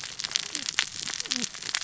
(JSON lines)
{"label": "biophony, cascading saw", "recorder": "SoundTrap 600 or HydroMoth"}